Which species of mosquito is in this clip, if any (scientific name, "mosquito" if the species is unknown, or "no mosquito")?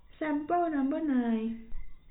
no mosquito